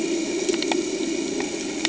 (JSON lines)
{"label": "anthrophony, boat engine", "recorder": "HydroMoth"}